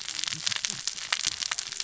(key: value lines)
label: biophony, cascading saw
recorder: SoundTrap 600 or HydroMoth